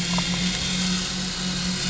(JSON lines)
{"label": "anthrophony, boat engine", "recorder": "SoundTrap 500"}
{"label": "biophony, damselfish", "recorder": "SoundTrap 500"}